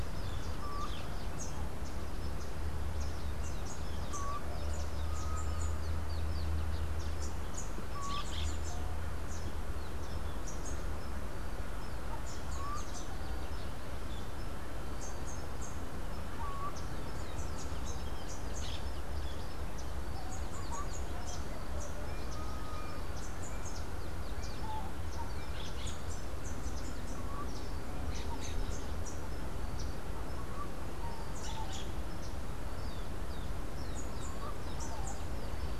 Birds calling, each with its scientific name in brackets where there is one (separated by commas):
Rufous-capped Warbler (Basileuterus rufifrons), Rufous-and-white Wren (Thryophilus rufalbus), Orange-fronted Parakeet (Eupsittula canicularis)